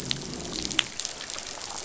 {"label": "biophony, growl", "recorder": "SoundTrap 500"}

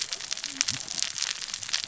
{"label": "biophony, cascading saw", "recorder": "SoundTrap 600 or HydroMoth"}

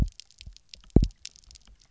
{"label": "biophony, double pulse", "recorder": "SoundTrap 300"}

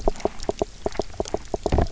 {"label": "biophony, knock", "recorder": "SoundTrap 300"}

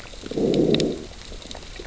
{"label": "biophony, growl", "recorder": "SoundTrap 600 or HydroMoth"}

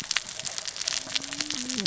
{"label": "biophony, cascading saw", "recorder": "SoundTrap 600 or HydroMoth"}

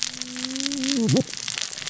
{"label": "biophony, cascading saw", "recorder": "SoundTrap 600 or HydroMoth"}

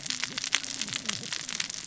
{"label": "biophony, cascading saw", "recorder": "SoundTrap 600 or HydroMoth"}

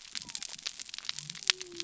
{"label": "biophony", "recorder": "SoundTrap 300"}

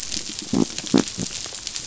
{"label": "biophony", "recorder": "SoundTrap 500"}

